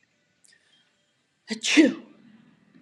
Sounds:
Sneeze